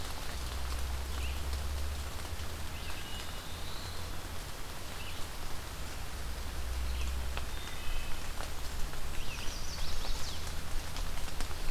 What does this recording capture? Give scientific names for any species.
Vireo olivaceus, Hylocichla mustelina, Setophaga caerulescens, Setophaga pensylvanica